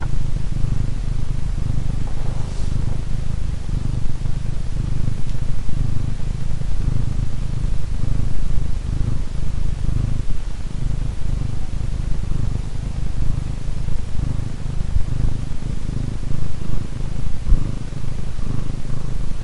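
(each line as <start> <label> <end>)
0.0 A cat is quietly purring in the background. 19.4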